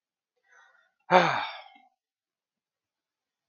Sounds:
Sigh